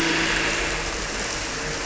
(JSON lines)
{"label": "anthrophony, boat engine", "recorder": "SoundTrap 300"}